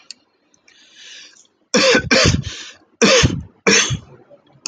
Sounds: Cough